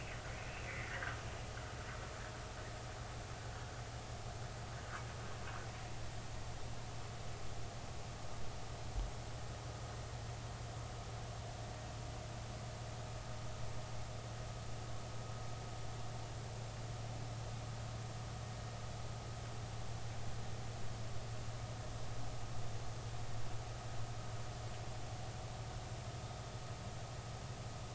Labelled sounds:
0.7	1.2	metallic sound likely from a chain, 1.2 to 2.5 kHz

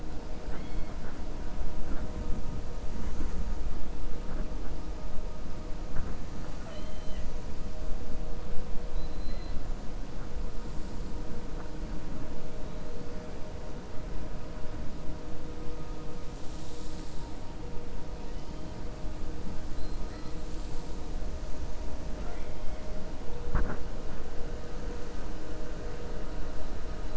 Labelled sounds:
0.4	1.2	killer whale, 0.67 to 4.4 kHz
6.4	7.3	killer whale, 0.61 to 4.2 kHz
8.8	9.6	killer whale, 3.3 to 4.5 kHz

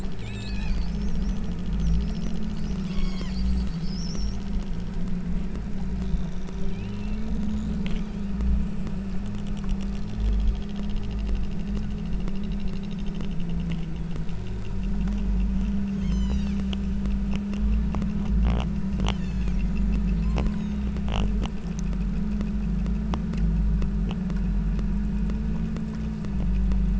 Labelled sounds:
0.2	0.9	killer whale, southern Alaska resident, 1.4 to 8.0 kHz
2.9	3.4	killer whale, southern Alaska resident, 0.80 to 8.0 kHz
6.6	7.3	killer whale, southern Alaska resident, 2.0 to 3.8 kHz
8.0	8.4	killer whale, southern Alaska resident, 2.8 to 5.3 kHz
15.9	16.7	killer whale, southern Alaska resident, 0.84 to 8.0 kHz
19.1	19.6	killer whale, southern Alaska resident, 1.4 to 7.8 kHz
20.3	21.0	killer whale, southern Alaska resident, 3.4 to 8.0 kHz

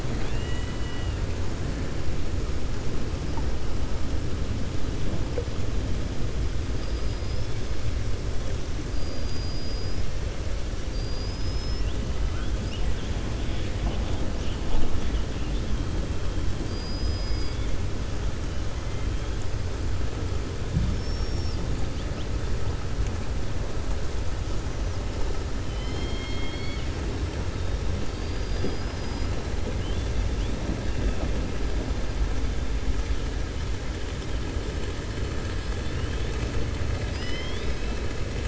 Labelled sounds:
0.0	1.2	killer whale, 0.76 to 4.2 kHz
6.8	7.5	killer whale, 4.2 to 5.4 kHz
8.9	10.0	killer whale, 4.3 to 5.9 kHz
10.8	11.9	killer whale, 4.3 to 5.7 kHz
16.6	17.7	killer whale, 2.2 to 5.1 kHz
25.6	26.9	killer whale, 1.9 to 5.4 kHz

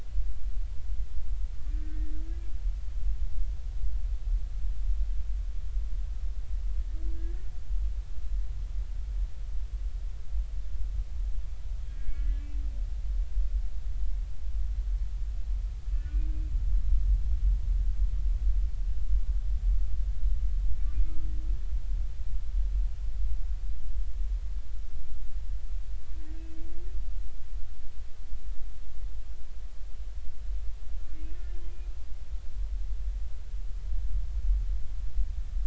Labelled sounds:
1.8	2.2	humpback whale, 1.8 to 1.9 kHz
2.7	3.0	humpback whale, 1.5 to 1.6 kHz
11.9	12.4	humpback whale, 1.6 to 1.8 kHz
15.9	16.2	humpback whale, 1.4 to 1.6 kHz
31.3	31.6	humpback whale, 1.7 to 1.8 kHz

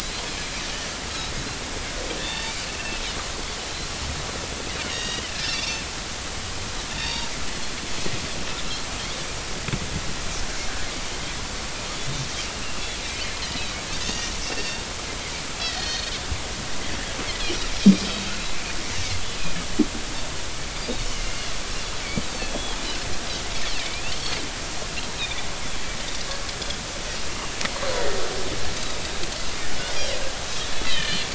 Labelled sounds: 2.2	3.0	Pacific white-sided dolphin, 0.83 to 3.7 kHz
4.8	5.8	Pacific white-sided dolphin, 1.6 to 4.8 kHz
7.0	7.3	Pacific white-sided dolphin, 0.86 to 4.8 kHz
12.6	13.3	Pacific white-sided dolphin, 2.3 to 2.9 kHz
13.9	14.8	Pacific white-sided dolphin, 1.8 to 3.8 kHz
15.6	16.1	Pacific white-sided dolphin, 1.8 to 4.4 kHz
21.1	21.4	Pacific white-sided dolphin, 2.8 to 6.5 kHz
22.5	22.8	Pacific white-sided dolphin, 3.2 to 3.5 kHz
23.8	24.0	Pacific white-sided dolphin, 2.1 to 2.5 kHz
28.8	29.0	Pacific white-sided dolphin, 3.7 to 4.0 kHz
30.9	31.2	Pacific white-sided dolphin, 2.3 to 3.2 kHz

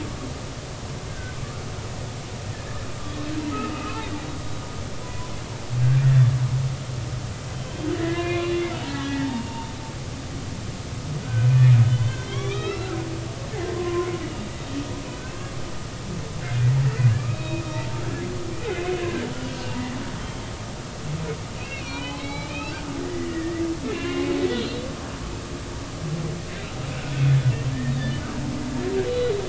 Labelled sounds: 1.1	1.4	humpback whale, 1.4 to 1.6 kHz
3.8	5.3	humpback whale, 0.93 to 2.7 kHz
7.5	9.7	humpback whale, 0.80 to 3.9 kHz
11.2	12.9	humpback whale, 1.0 to 4.0 kHz
13.7	14.5	humpback whale, 0.96 to 3.0 kHz
15.1	15.3	humpback whale, 1.4 to 1.6 kHz
17.1	18.0	humpback whale, 0.86 to 3.8 kHz
18.7	19.6	humpback whale, 1.5 to 3.0 kHz
21.6	24.3	humpback whale, 0.99 to 4.4 kHz

